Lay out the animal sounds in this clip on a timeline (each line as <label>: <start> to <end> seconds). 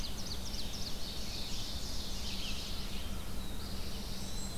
American Robin (Turdus migratorius): 0.0 to 2.7 seconds
Ovenbird (Seiurus aurocapilla): 0.0 to 3.0 seconds
Red-eyed Vireo (Vireo olivaceus): 0.0 to 4.6 seconds
American Crow (Corvus brachyrhynchos): 2.2 to 3.8 seconds
Black-throated Blue Warbler (Setophaga caerulescens): 3.2 to 4.6 seconds
Eastern Wood-Pewee (Contopus virens): 3.3 to 4.6 seconds